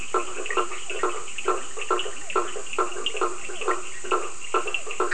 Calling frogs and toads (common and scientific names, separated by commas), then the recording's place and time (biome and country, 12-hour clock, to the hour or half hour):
blacksmith tree frog (Boana faber), Leptodactylus latrans, Physalaemus cuvieri, Cochran's lime tree frog (Sphaenorhynchus surdus)
Atlantic Forest, Brazil, 10pm